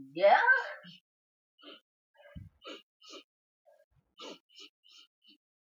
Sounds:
Sniff